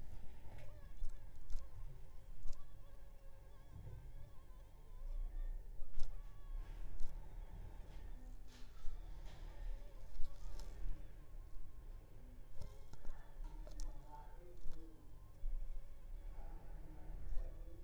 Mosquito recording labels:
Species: Anopheles funestus s.s.; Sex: female; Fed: unfed; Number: one; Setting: cup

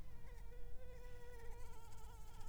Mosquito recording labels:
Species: Anopheles arabiensis; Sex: female; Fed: unfed; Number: one; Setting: cup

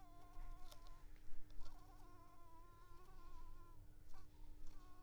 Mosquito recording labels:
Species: Anopheles coustani; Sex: female; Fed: unfed; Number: one; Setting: cup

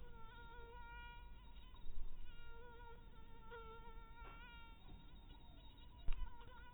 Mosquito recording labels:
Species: mosquito; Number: one; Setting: cup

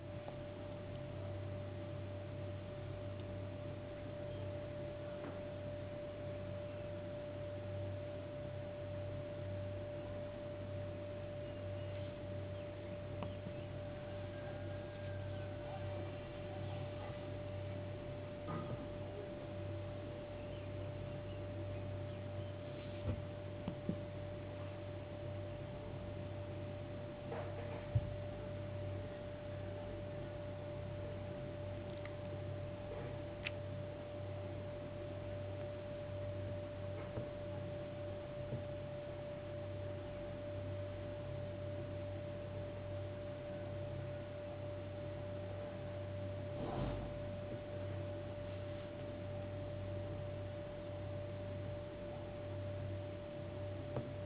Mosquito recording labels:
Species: no mosquito; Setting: insect culture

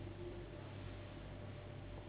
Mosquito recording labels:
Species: Anopheles gambiae s.s.; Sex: female; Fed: unfed; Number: one; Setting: insect culture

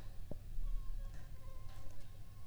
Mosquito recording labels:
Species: Anopheles funestus s.s.; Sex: female; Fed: unfed; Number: one; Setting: cup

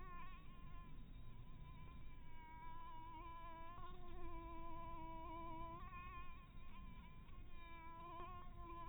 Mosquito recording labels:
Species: Anopheles barbirostris; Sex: female; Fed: blood-fed; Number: one; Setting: cup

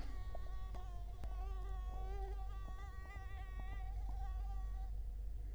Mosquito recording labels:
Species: Culex quinquefasciatus; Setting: cup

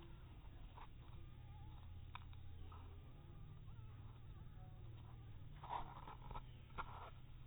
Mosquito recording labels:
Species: mosquito; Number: one; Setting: cup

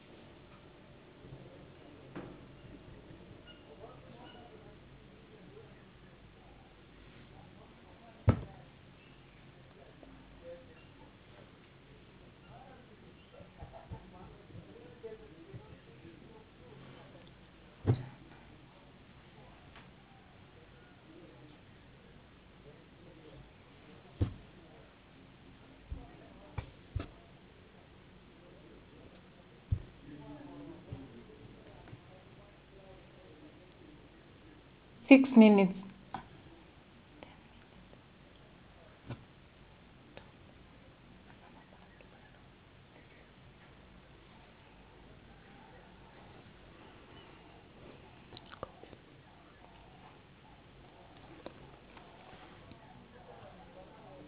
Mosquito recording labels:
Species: no mosquito; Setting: insect culture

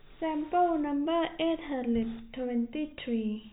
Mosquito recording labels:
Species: no mosquito; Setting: cup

